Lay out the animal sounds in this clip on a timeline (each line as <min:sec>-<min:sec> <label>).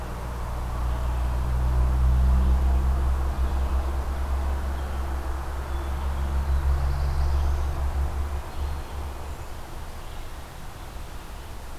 0:00.0-0:11.8 Red-eyed Vireo (Vireo olivaceus)
0:06.2-0:07.8 Black-throated Blue Warbler (Setophaga caerulescens)